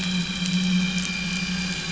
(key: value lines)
label: anthrophony, boat engine
recorder: SoundTrap 500